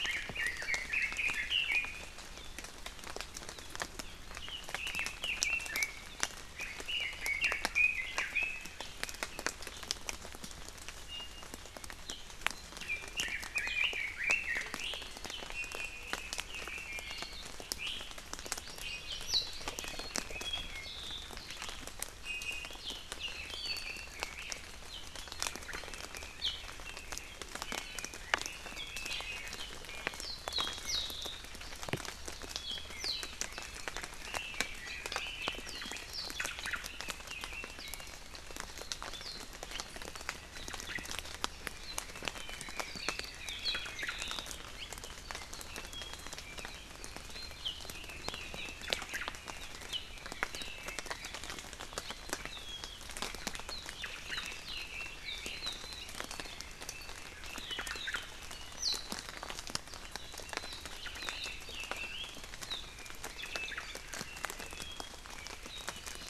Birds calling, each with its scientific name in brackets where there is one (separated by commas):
Red-billed Leiothrix (Leiothrix lutea), Omao (Myadestes obscurus), Apapane (Himatione sanguinea), Iiwi (Drepanis coccinea), Hawaii Amakihi (Chlorodrepanis virens)